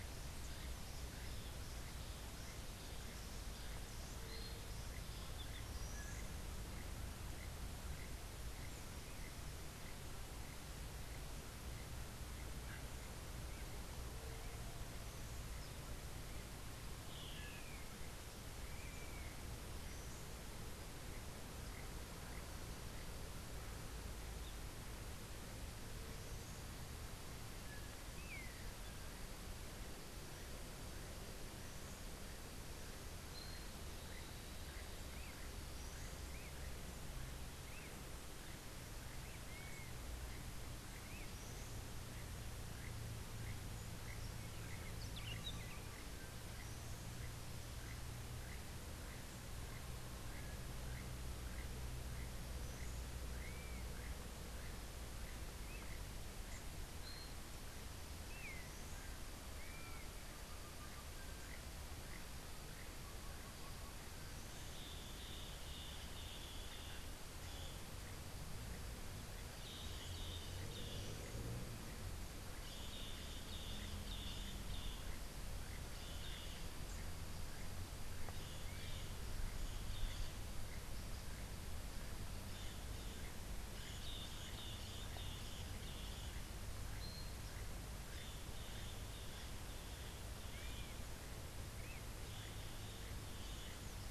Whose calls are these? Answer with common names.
Great Kiskadee, Long-tailed Manakin, Buff-throated Saltator, Dusky-capped Flycatcher, Yellow-crowned Euphonia, Rufous-and-white Wren, Crimson-fronted Parakeet